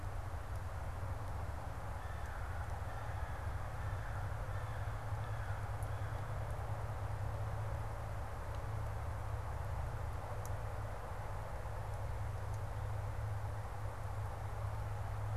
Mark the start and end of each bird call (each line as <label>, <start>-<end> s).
American Crow (Corvus brachyrhynchos), 1.8-6.6 s